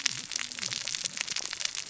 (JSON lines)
{"label": "biophony, cascading saw", "recorder": "SoundTrap 600 or HydroMoth"}